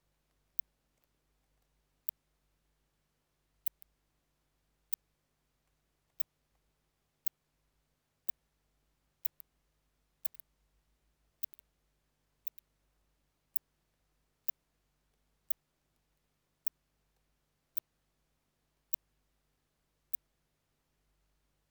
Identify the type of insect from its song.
orthopteran